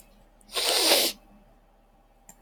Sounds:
Sniff